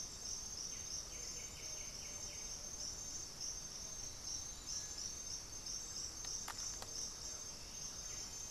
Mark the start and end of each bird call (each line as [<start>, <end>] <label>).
[0.50, 2.70] White-winged Becard (Pachyramphus polychopterus)
[3.80, 6.00] Black-throated Antbird (Myrmophylax atrothorax)
[5.60, 8.50] Blue-gray Saltator (Saltator coerulescens)